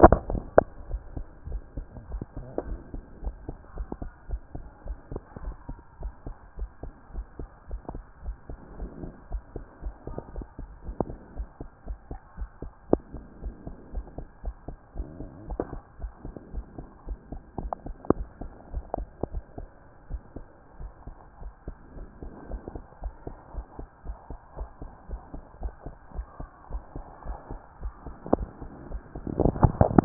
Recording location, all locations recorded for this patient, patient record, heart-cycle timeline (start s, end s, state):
tricuspid valve (TV)
aortic valve (AV)+pulmonary valve (PV)+tricuspid valve (TV)+mitral valve (MV)
#Age: Child
#Sex: Female
#Height: 133.0 cm
#Weight: 34.6 kg
#Pregnancy status: False
#Murmur: Absent
#Murmur locations: nan
#Most audible location: nan
#Systolic murmur timing: nan
#Systolic murmur shape: nan
#Systolic murmur grading: nan
#Systolic murmur pitch: nan
#Systolic murmur quality: nan
#Diastolic murmur timing: nan
#Diastolic murmur shape: nan
#Diastolic murmur grading: nan
#Diastolic murmur pitch: nan
#Diastolic murmur quality: nan
#Outcome: Abnormal
#Campaign: 2014 screening campaign
0.00	0.74	unannotated
0.74	0.88	diastole
0.88	1.02	S1
1.02	1.16	systole
1.16	1.26	S2
1.26	1.48	diastole
1.48	1.62	S1
1.62	1.76	systole
1.76	1.86	S2
1.86	2.10	diastole
2.10	2.24	S1
2.24	2.36	systole
2.36	2.46	S2
2.46	2.66	diastole
2.66	2.80	S1
2.80	2.94	systole
2.94	3.04	S2
3.04	3.22	diastole
3.22	3.36	S1
3.36	3.48	systole
3.48	3.56	S2
3.56	3.76	diastole
3.76	3.88	S1
3.88	4.00	systole
4.00	4.10	S2
4.10	4.28	diastole
4.28	4.42	S1
4.42	4.54	systole
4.54	4.64	S2
4.64	4.86	diastole
4.86	4.98	S1
4.98	5.12	systole
5.12	5.22	S2
5.22	5.44	diastole
5.44	5.56	S1
5.56	5.68	systole
5.68	5.78	S2
5.78	6.02	diastole
6.02	6.14	S1
6.14	6.26	systole
6.26	6.36	S2
6.36	6.58	diastole
6.58	6.70	S1
6.70	6.84	systole
6.84	6.92	S2
6.92	7.14	diastole
7.14	7.26	S1
7.26	7.38	systole
7.38	7.48	S2
7.48	7.70	diastole
7.70	7.82	S1
7.82	7.94	systole
7.94	8.02	S2
8.02	8.24	diastole
8.24	8.36	S1
8.36	8.50	systole
8.50	8.58	S2
8.58	8.78	diastole
8.78	8.90	S1
8.90	9.02	systole
9.02	9.12	S2
9.12	9.30	diastole
9.30	9.42	S1
9.42	9.56	systole
9.56	9.64	S2
9.64	9.84	diastole
9.84	9.94	S1
9.94	10.08	systole
10.08	10.18	S2
10.18	10.36	diastole
10.36	10.46	S1
10.46	10.60	systole
10.60	10.70	S2
10.70	10.86	diastole
10.86	10.96	S1
10.96	11.08	systole
11.08	11.18	S2
11.18	11.36	diastole
11.36	11.48	S1
11.48	11.60	systole
11.60	11.68	S2
11.68	11.88	diastole
11.88	11.98	S1
11.98	12.10	systole
12.10	12.20	S2
12.20	12.38	diastole
12.38	12.50	S1
12.50	12.62	systole
12.62	12.72	S2
12.72	12.90	diastole
12.90	13.02	S1
13.02	13.14	systole
13.14	13.24	S2
13.24	13.42	diastole
13.42	13.54	S1
13.54	13.66	systole
13.66	13.76	S2
13.76	13.94	diastole
13.94	14.06	S1
14.06	14.18	systole
14.18	14.26	S2
14.26	14.44	diastole
14.44	14.56	S1
14.56	14.68	systole
14.68	14.76	S2
14.76	14.96	diastole
14.96	15.08	S1
15.08	15.20	systole
15.20	15.30	S2
15.30	15.48	diastole
15.48	15.60	S1
15.60	15.72	systole
15.72	15.82	S2
15.82	16.00	diastole
16.00	16.12	S1
16.12	16.24	systole
16.24	16.34	S2
16.34	16.54	diastole
16.54	16.66	S1
16.66	16.78	systole
16.78	16.86	S2
16.86	17.08	diastole
17.08	17.18	S1
17.18	17.32	systole
17.32	17.40	S2
17.40	17.60	diastole
17.60	17.72	S1
17.72	17.86	systole
17.86	17.96	S2
17.96	18.16	diastole
18.16	18.28	S1
18.28	18.40	systole
18.40	18.50	S2
18.50	18.72	diastole
18.72	18.84	S1
18.84	18.98	systole
18.98	19.08	S2
19.08	19.32	diastole
19.32	19.44	S1
19.44	19.58	systole
19.58	19.68	S2
19.68	20.10	diastole
20.10	20.22	S1
20.22	20.36	systole
20.36	20.46	S2
20.46	20.80	diastole
20.80	20.92	S1
20.92	21.06	systole
21.06	21.16	S2
21.16	21.42	diastole
21.42	21.52	S1
21.52	21.66	systole
21.66	21.76	S2
21.76	21.96	diastole
21.96	22.08	S1
22.08	22.22	systole
22.22	22.32	S2
22.32	22.50	diastole
22.50	22.62	S1
22.62	22.74	systole
22.74	22.84	S2
22.84	23.02	diastole
23.02	23.14	S1
23.14	23.26	systole
23.26	23.36	S2
23.36	23.54	diastole
23.54	23.66	S1
23.66	23.78	systole
23.78	23.88	S2
23.88	24.06	diastole
24.06	24.18	S1
24.18	24.30	systole
24.30	24.38	S2
24.38	24.58	diastole
24.58	24.70	S1
24.70	24.82	systole
24.82	24.90	S2
24.90	25.10	diastole
25.10	25.22	S1
25.22	25.34	systole
25.34	25.42	S2
25.42	25.62	diastole
25.62	25.74	S1
25.74	25.86	systole
25.86	25.94	S2
25.94	26.16	diastole
26.16	26.26	S1
26.26	26.40	systole
26.40	26.48	S2
26.48	26.72	diastole
26.72	26.82	S1
26.82	26.96	systole
26.96	27.04	S2
27.04	27.26	diastole
27.26	27.38	S1
27.38	27.50	systole
27.50	27.60	S2
27.60	27.82	diastole
27.82	30.05	unannotated